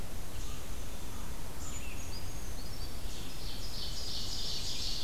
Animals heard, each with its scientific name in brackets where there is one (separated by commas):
Ovenbird (Seiurus aurocapilla), Red-eyed Vireo (Vireo olivaceus), Brown Creeper (Certhia americana)